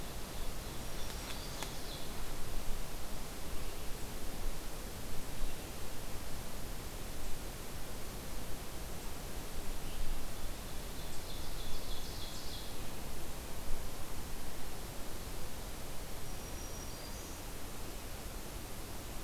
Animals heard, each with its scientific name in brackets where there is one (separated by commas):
Black-throated Green Warbler (Setophaga virens), Ovenbird (Seiurus aurocapilla)